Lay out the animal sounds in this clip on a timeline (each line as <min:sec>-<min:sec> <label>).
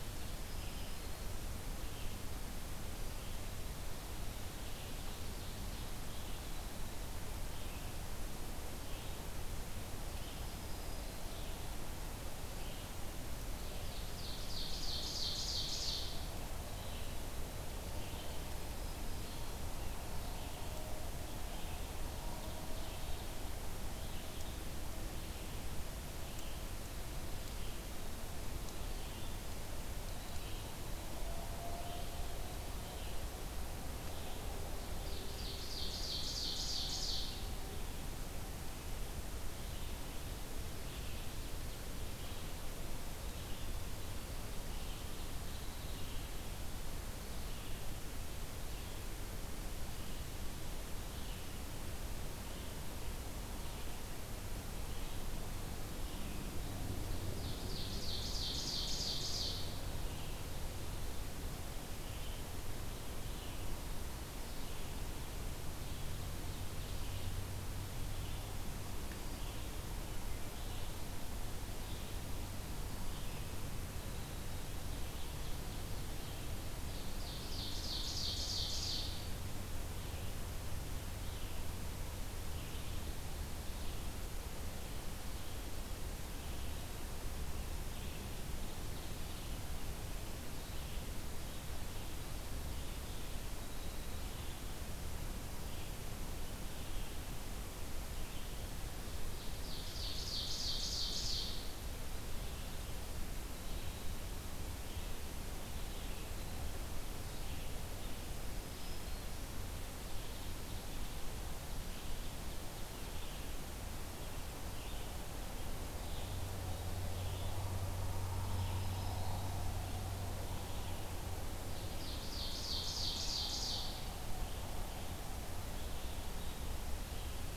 0:00.0-0:09.5 Red-eyed Vireo (Vireo olivaceus)
0:00.4-0:01.5 Black-throated Green Warbler (Setophaga virens)
0:04.3-0:06.1 Ovenbird (Seiurus aurocapilla)
0:10.0-1:08.6 Red-eyed Vireo (Vireo olivaceus)
0:10.1-0:11.4 Black-throated Green Warbler (Setophaga virens)
0:13.8-0:16.4 Ovenbird (Seiurus aurocapilla)
0:18.7-0:19.6 Black-throated Green Warbler (Setophaga virens)
0:34.8-0:37.6 Ovenbird (Seiurus aurocapilla)
0:44.6-0:46.3 Ovenbird (Seiurus aurocapilla)
0:57.2-1:00.0 Ovenbird (Seiurus aurocapilla)
1:09.1-2:07.5 Red-eyed Vireo (Vireo olivaceus)
1:14.8-1:19.5 Ovenbird (Seiurus aurocapilla)
1:39.4-1:41.8 Ovenbird (Seiurus aurocapilla)
1:48.1-1:49.6 Black-throated Green Warbler (Setophaga virens)
1:58.0-1:59.6 Black-throated Green Warbler (Setophaga virens)
2:01.5-2:04.1 Ovenbird (Seiurus aurocapilla)